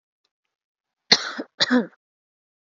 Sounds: Cough